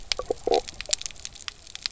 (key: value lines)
label: biophony, stridulation
recorder: SoundTrap 300